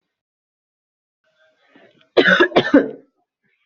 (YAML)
expert_labels:
- quality: good
  cough_type: unknown
  dyspnea: false
  wheezing: false
  stridor: false
  choking: false
  congestion: false
  nothing: true
  diagnosis: lower respiratory tract infection
  severity: mild
age: 41
gender: female
respiratory_condition: false
fever_muscle_pain: false
status: symptomatic